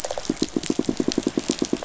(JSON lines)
{"label": "biophony, pulse", "recorder": "SoundTrap 500"}